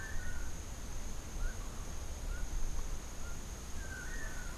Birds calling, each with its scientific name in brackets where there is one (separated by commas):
Long-tailed Manakin (Chiroxiphia linearis), Melodious Blackbird (Dives dives)